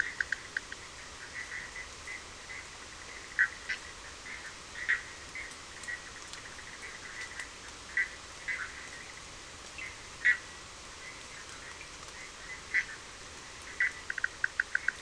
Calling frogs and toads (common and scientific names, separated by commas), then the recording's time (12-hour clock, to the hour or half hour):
Bischoff's tree frog (Boana bischoffi)
~11pm